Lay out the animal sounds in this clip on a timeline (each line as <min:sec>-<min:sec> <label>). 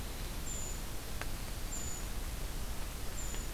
0:00.0-0:02.0 Winter Wren (Troglodytes hiemalis)
0:00.0-0:03.5 Brown Creeper (Certhia americana)